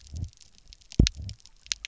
{"label": "biophony, double pulse", "recorder": "SoundTrap 300"}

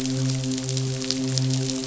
{"label": "biophony, midshipman", "recorder": "SoundTrap 500"}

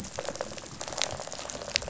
{"label": "biophony, rattle response", "recorder": "SoundTrap 500"}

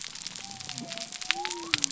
{"label": "biophony", "recorder": "SoundTrap 300"}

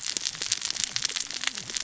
{"label": "biophony, cascading saw", "recorder": "SoundTrap 600 or HydroMoth"}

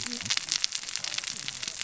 {"label": "biophony, cascading saw", "recorder": "SoundTrap 600 or HydroMoth"}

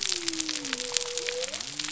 {"label": "biophony", "recorder": "SoundTrap 300"}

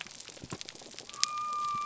{"label": "biophony", "recorder": "SoundTrap 300"}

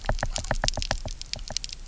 {"label": "biophony, knock", "recorder": "SoundTrap 300"}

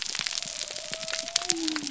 {"label": "biophony", "recorder": "SoundTrap 300"}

